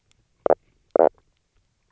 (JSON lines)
{"label": "biophony, knock croak", "recorder": "SoundTrap 300"}